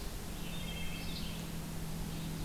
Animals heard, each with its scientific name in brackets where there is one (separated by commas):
Red-eyed Vireo (Vireo olivaceus), Wood Thrush (Hylocichla mustelina)